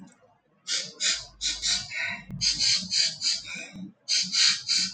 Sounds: Sniff